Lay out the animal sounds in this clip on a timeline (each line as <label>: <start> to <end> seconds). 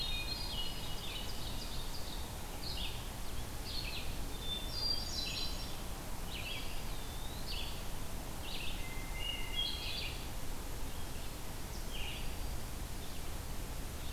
Hermit Thrush (Catharus guttatus): 0.0 to 1.5 seconds
Red-eyed Vireo (Vireo olivaceus): 0.0 to 14.1 seconds
Ovenbird (Seiurus aurocapilla): 0.7 to 2.3 seconds
Hermit Thrush (Catharus guttatus): 4.2 to 5.9 seconds
Eastern Wood-Pewee (Contopus virens): 6.2 to 7.5 seconds
Hermit Thrush (Catharus guttatus): 8.6 to 10.6 seconds